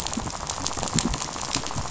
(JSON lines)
{"label": "biophony, rattle", "recorder": "SoundTrap 500"}